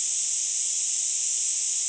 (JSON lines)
{"label": "ambient", "recorder": "HydroMoth"}